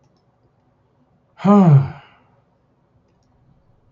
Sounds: Sigh